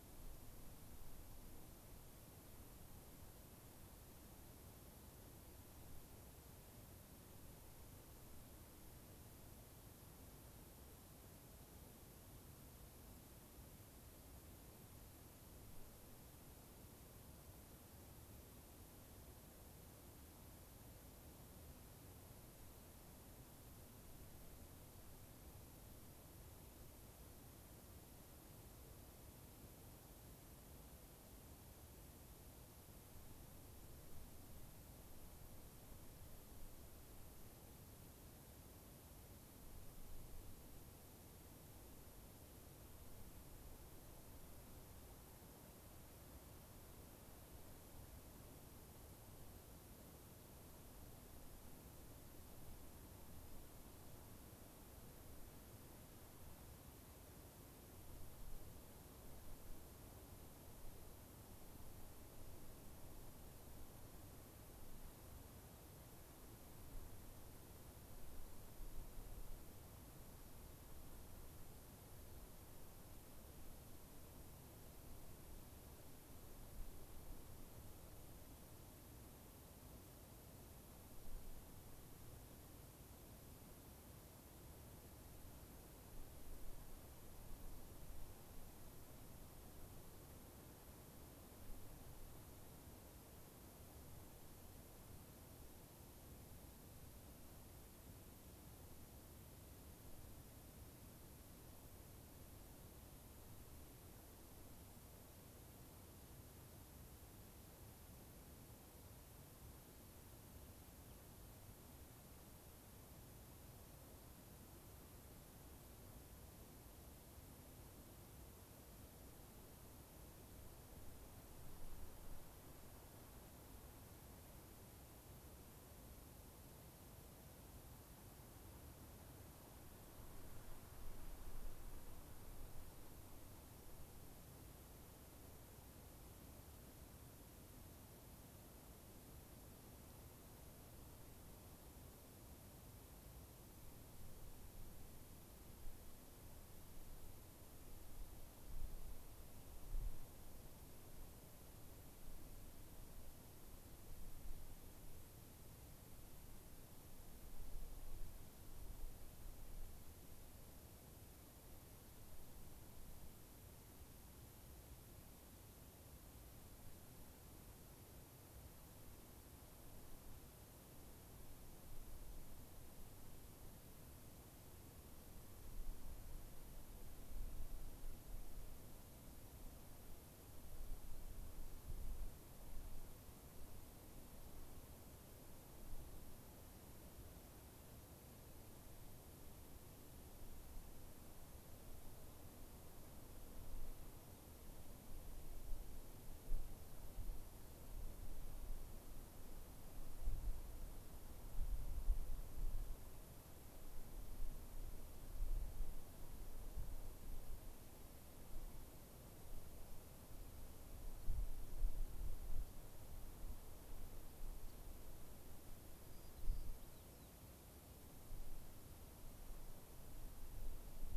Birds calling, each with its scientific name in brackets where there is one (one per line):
White-crowned Sparrow (Zonotrichia leucophrys)